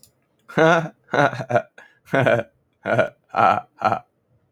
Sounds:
Laughter